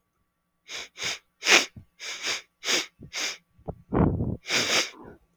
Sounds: Sniff